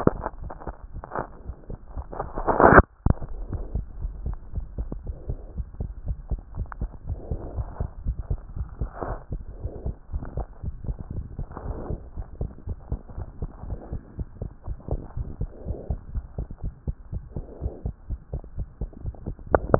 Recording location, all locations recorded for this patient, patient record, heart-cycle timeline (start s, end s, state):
tricuspid valve (TV)
aortic valve (AV)+pulmonary valve (PV)+tricuspid valve (TV)+mitral valve (MV)
#Age: Child
#Sex: Male
#Height: nan
#Weight: nan
#Pregnancy status: False
#Murmur: Present
#Murmur locations: aortic valve (AV)+mitral valve (MV)+pulmonary valve (PV)+tricuspid valve (TV)
#Most audible location: tricuspid valve (TV)
#Systolic murmur timing: Holosystolic
#Systolic murmur shape: Plateau
#Systolic murmur grading: II/VI
#Systolic murmur pitch: Low
#Systolic murmur quality: Blowing
#Diastolic murmur timing: nan
#Diastolic murmur shape: nan
#Diastolic murmur grading: nan
#Diastolic murmur pitch: nan
#Diastolic murmur quality: nan
#Outcome: Normal
#Campaign: 2014 screening campaign
0.00	3.93	unannotated
3.93	4.02	diastole
4.02	4.12	S1
4.12	4.26	systole
4.26	4.36	S2
4.36	4.54	diastole
4.54	4.66	S1
4.66	4.78	systole
4.78	4.86	S2
4.86	5.06	diastole
5.06	5.16	S1
5.16	5.28	systole
5.28	5.38	S2
5.38	5.56	diastole
5.56	5.66	S1
5.66	5.80	systole
5.80	5.88	S2
5.88	6.06	diastole
6.06	6.16	S1
6.16	6.30	systole
6.30	6.40	S2
6.40	6.56	diastole
6.56	6.68	S1
6.68	6.80	systole
6.80	6.90	S2
6.90	7.08	diastole
7.08	7.18	S1
7.18	7.30	systole
7.30	7.40	S2
7.40	7.56	diastole
7.56	7.68	S1
7.68	7.80	systole
7.80	7.88	S2
7.88	8.06	diastole
8.06	8.16	S1
8.16	8.30	systole
8.30	8.38	S2
8.38	8.56	diastole
8.56	8.68	S1
8.68	8.80	systole
8.80	8.90	S2
8.90	9.06	diastole
9.06	9.18	S1
9.18	9.32	systole
9.32	9.42	S2
9.42	9.62	diastole
9.62	9.72	S1
9.72	9.84	systole
9.84	9.94	S2
9.94	10.12	diastole
10.12	10.24	S1
10.24	10.36	systole
10.36	10.46	S2
10.46	10.63	diastole
10.63	10.76	S1
10.76	10.88	systole
10.88	10.98	S2
10.98	11.16	diastole
11.16	11.26	S1
11.26	11.38	systole
11.38	11.46	S2
11.46	11.66	diastole
11.66	11.78	S1
11.78	11.88	systole
11.88	12.00	S2
12.00	12.18	diastole
12.18	12.26	S1
12.26	12.40	systole
12.40	12.50	S2
12.50	12.68	diastole
12.68	12.76	S1
12.76	12.90	systole
12.90	13.00	S2
13.00	13.18	diastole
13.18	13.28	S1
13.28	13.40	systole
13.40	13.50	S2
13.50	13.68	diastole
13.68	13.78	S1
13.78	13.92	systole
13.92	14.02	S2
14.02	14.18	diastole
14.18	14.28	S1
14.28	14.40	systole
14.40	14.50	S2
14.50	14.68	diastole
14.68	14.78	S1
14.78	14.90	systole
14.90	15.00	S2
15.00	15.18	diastole
15.18	15.28	S1
15.28	15.40	systole
15.40	15.50	S2
15.50	15.66	diastole
15.66	15.78	S1
15.78	15.88	systole
15.88	16.00	S2
16.00	16.14	diastole
16.14	16.24	S1
16.24	16.38	systole
16.38	16.48	S2
16.48	16.64	diastole
16.64	16.74	S1
16.74	16.86	systole
16.86	16.96	S2
16.96	17.12	diastole
17.12	17.22	S1
17.22	17.36	systole
17.36	17.44	S2
17.44	17.62	diastole
17.62	17.72	S1
17.72	17.84	systole
17.84	17.94	S2
17.94	18.10	diastole
18.10	18.20	S1
18.20	18.32	systole
18.32	18.42	S2
18.42	18.58	diastole
18.58	18.68	S1
18.68	18.80	systole
18.80	18.90	S2
18.90	19.04	diastole
19.04	19.79	unannotated